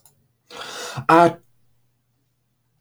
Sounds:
Sneeze